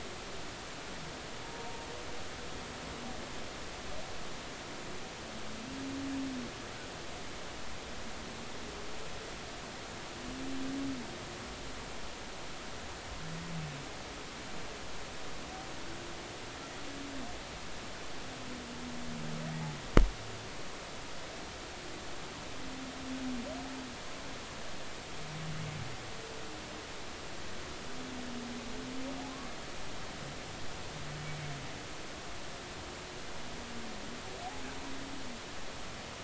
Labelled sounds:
1.6	1.9	humpback whale, 0.86 to 0.96 kHz

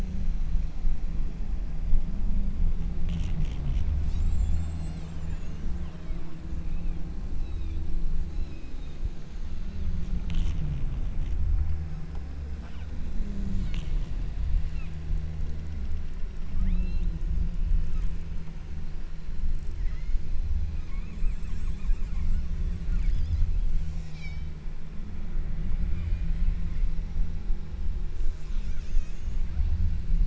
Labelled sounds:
4.0	7.2	killer whale, southern Alaska resident, 1.1 to 8.0 kHz
7.5	8.0	killer whale, southern Alaska resident, 2.1 to 8.0 kHz
8.4	9.2	killer whale, southern Alaska resident, 2.3 to 6.7 kHz
9.5	10.2	killer whale, southern Alaska resident, 2.3 to 5.6 kHz
12.6	13.1	killer whale, southern Alaska resident, 1.1 to 3.8 kHz
13.9	14.3	killer whale, southern Alaska resident, 1.7 to 4.1 kHz
14.8	15.2	killer whale, southern Alaska resident, 1.1 to 4.3 kHz
16.8	17.3	killer whale, southern Alaska resident, 2.4 to 5.8 kHz
17.8	18.2	killer whale, southern Alaska resident, 1.1 to 2.9 kHz
19.8	20.4	killer whale, southern Alaska resident, 0.96 to 4.1 kHz
20.9	22.6	killer whale, southern Alaska resident, 0.93 to 8.0 kHz
22.9	24.7	killer whale, southern Alaska resident, 1.1 to 8.0 kHz
25.7	26.8	killer whale, southern Alaska resident, 2.0 to 8.0 kHz
28.2	29.6	killer whale, southern Alaska resident, 0.87 to 8.0 kHz

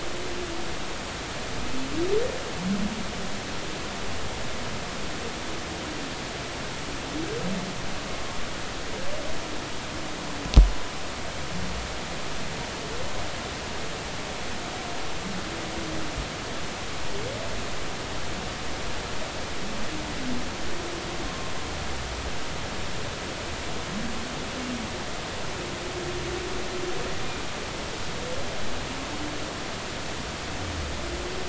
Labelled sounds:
21.2	21.5	humpback whale, 1.0 to 1.1 kHz

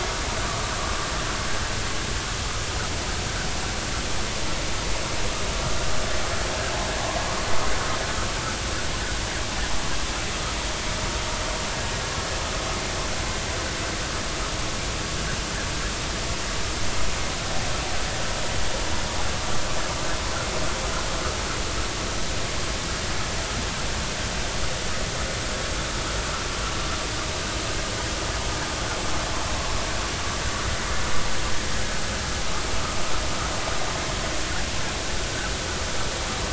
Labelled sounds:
0.0	0.7	vessel noise, 1.1 to 1.3 kHz

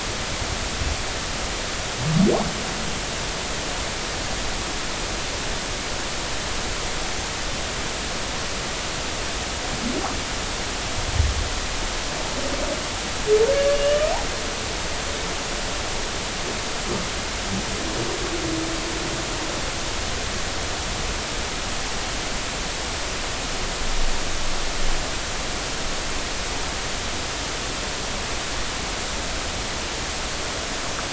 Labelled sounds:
13.5	14.1	humpback whale, 1.4 to 3.0 kHz

